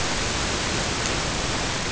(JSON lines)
{"label": "ambient", "recorder": "HydroMoth"}